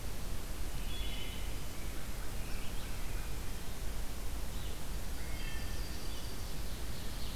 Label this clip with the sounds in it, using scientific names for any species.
Vireo olivaceus, Hylocichla mustelina, Pheucticus ludovicianus, Corvus brachyrhynchos, Setophaga coronata, Seiurus aurocapilla